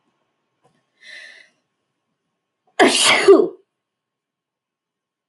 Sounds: Sneeze